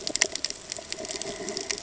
{"label": "ambient", "recorder": "HydroMoth"}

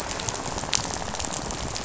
{"label": "biophony, rattle", "recorder": "SoundTrap 500"}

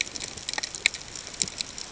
{"label": "ambient", "recorder": "HydroMoth"}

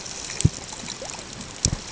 {"label": "ambient", "recorder": "HydroMoth"}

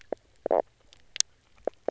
{"label": "biophony, knock croak", "recorder": "SoundTrap 300"}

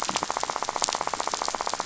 {"label": "biophony, rattle", "recorder": "SoundTrap 500"}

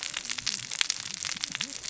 {"label": "biophony, cascading saw", "recorder": "SoundTrap 600 or HydroMoth"}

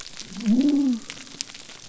{"label": "biophony", "recorder": "SoundTrap 300"}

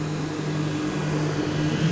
{"label": "anthrophony, boat engine", "recorder": "SoundTrap 500"}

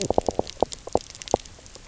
{"label": "biophony, knock croak", "recorder": "SoundTrap 300"}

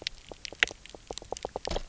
{"label": "biophony, knock croak", "recorder": "SoundTrap 300"}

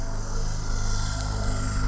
{"label": "anthrophony, boat engine", "recorder": "SoundTrap 300"}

